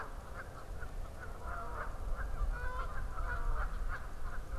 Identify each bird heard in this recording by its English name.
Canada Goose